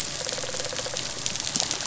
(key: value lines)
label: biophony
recorder: SoundTrap 500